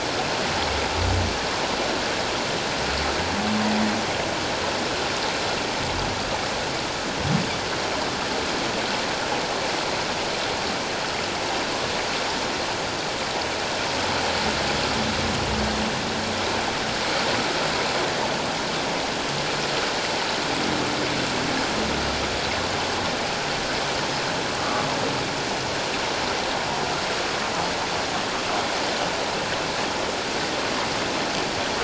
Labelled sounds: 24.6	24.9	humpback whale, 1.1 to 1.3 kHz

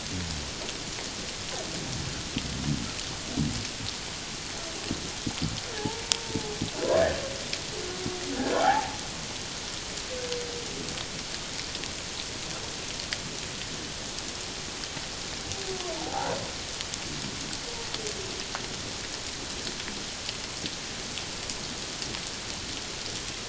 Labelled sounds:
5.8	6.5	humpback whale, 0.78 to 0.97 kHz
8.6	9.0	humpback whale, 0.78 to 0.94 kHz
15.9	16.4	humpback whale, 0.78 to 1.0 kHz

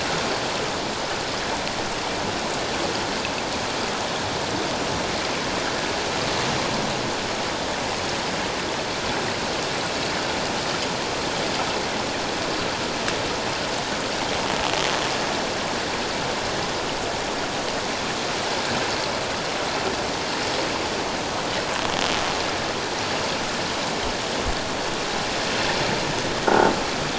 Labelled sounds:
26.5	26.7	croaking sound likely from a nearby submerged object, 1.3 to 1.5 kHz

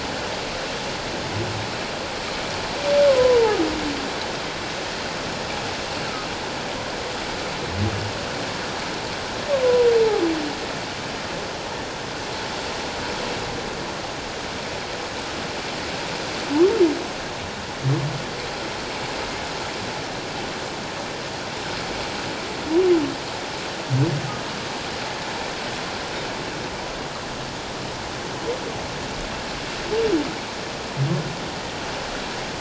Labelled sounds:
3.1	3.6	humpback whale, 0.78 to 1.1 kHz
10.0	10.2	humpback whale, 0.78 to 0.94 kHz

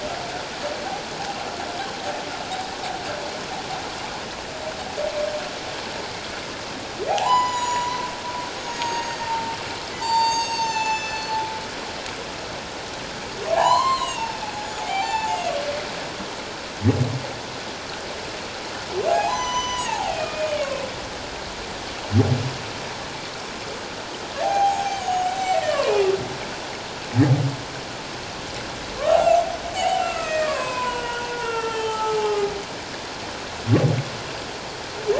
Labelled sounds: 7.1	8.0	humpback whale, 0.78 to 7.9 kHz
8.5	11.4	humpback whale, 0.84 to 7.9 kHz
13.5	15.4	humpback whale, 0.78 to 7.2 kHz
19.1	20.8	humpback whale, 0.78 to 6.1 kHz
24.4	25.9	humpback whale, 0.78 to 7.7 kHz
29.1	32.5	humpback whale, 0.78 to 7.9 kHz

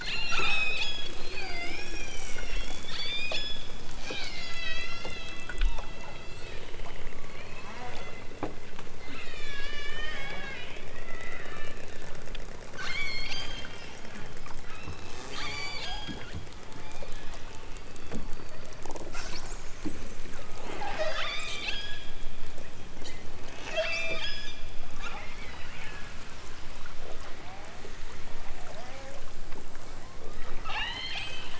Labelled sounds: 0.0	3.6	killer whale, southern Alaska resident, 0.46 to 8.0 kHz
3.9	6.7	killer whale, southern Alaska resident, 0.97 to 6.3 kHz
7.3	8.4	killer whale, southern Alaska resident, 1.4 to 4.7 kHz
8.9	11.9	killer whale, southern Alaska resident, 1.1 to 8.0 kHz
12.7	13.8	killer whale, southern Alaska resident, 1.0 to 8.0 kHz
14.6	16.3	killer whale, southern Alaska resident, 1.4 to 8.0 kHz
16.7	17.3	killer whale, southern Alaska resident, 1.7 to 4.8 kHz
18.0	19.0	killer whale, southern Alaska resident, 0.83 to 4.2 kHz
20.2	22.1	killer whale, southern Alaska resident, 0.32 to 7.1 kHz
23.6	24.6	killer whale, southern Alaska resident, 0.32 to 7.1 kHz
25.2	25.9	killer whale, southern Alaska resident, 0.92 to 5.4 kHz
30.6	31.4	killer whale, southern Alaska resident, 0.55 to 6.6 kHz

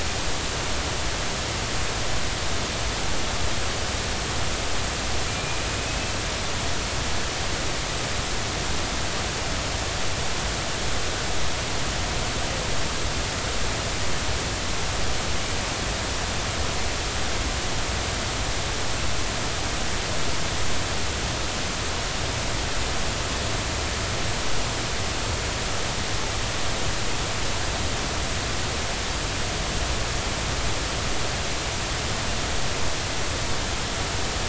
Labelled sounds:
5.3	6.2	killer whale, Bigg's (transient), 2.3 to 2.7 kHz

